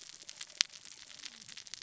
{"label": "biophony, cascading saw", "recorder": "SoundTrap 600 or HydroMoth"}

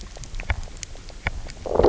{"label": "biophony, low growl", "recorder": "SoundTrap 300"}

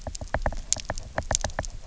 {"label": "biophony, knock", "recorder": "SoundTrap 300"}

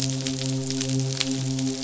{"label": "biophony, midshipman", "recorder": "SoundTrap 500"}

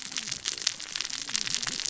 {"label": "biophony, cascading saw", "recorder": "SoundTrap 600 or HydroMoth"}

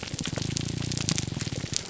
{"label": "biophony, grouper groan", "recorder": "SoundTrap 300"}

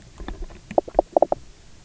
{"label": "biophony, knock croak", "recorder": "SoundTrap 300"}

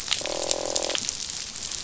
{"label": "biophony, croak", "recorder": "SoundTrap 500"}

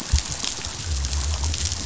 {"label": "biophony", "recorder": "SoundTrap 500"}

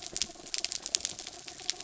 {"label": "anthrophony, mechanical", "recorder": "SoundTrap 300"}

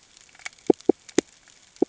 {"label": "ambient", "recorder": "HydroMoth"}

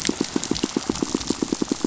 {"label": "biophony, pulse", "recorder": "SoundTrap 500"}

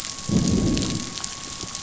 {"label": "biophony, growl", "recorder": "SoundTrap 500"}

